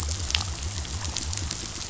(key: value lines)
label: biophony
recorder: SoundTrap 500